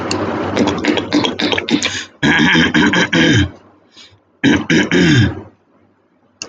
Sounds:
Throat clearing